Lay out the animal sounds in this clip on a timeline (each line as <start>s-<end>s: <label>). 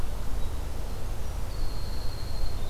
0.0s-2.7s: Winter Wren (Troglodytes hiemalis)